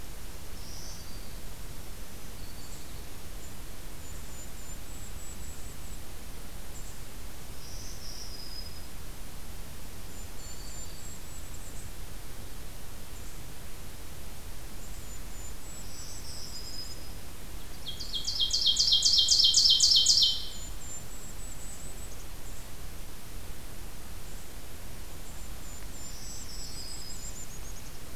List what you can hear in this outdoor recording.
Black-throated Green Warbler, Golden-crowned Kinglet, Ovenbird